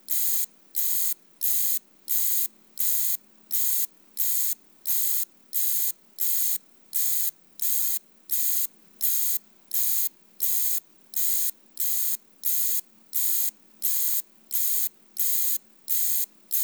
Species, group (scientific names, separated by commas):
Pseudosubria bispinosa, Orthoptera